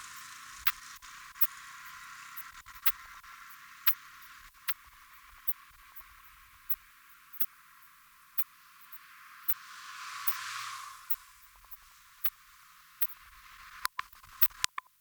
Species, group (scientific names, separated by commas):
Steropleurus brunnerii, Orthoptera